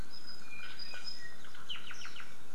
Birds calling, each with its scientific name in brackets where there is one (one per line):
Apapane (Himatione sanguinea)